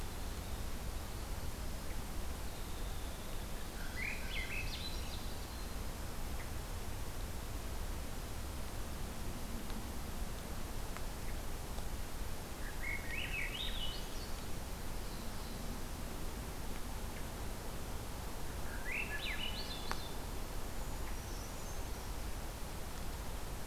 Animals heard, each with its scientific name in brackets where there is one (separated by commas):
Winter Wren (Troglodytes hiemalis), Black-throated Blue Warbler (Setophaga caerulescens), Swainson's Thrush (Catharus ustulatus), Brown Creeper (Certhia americana)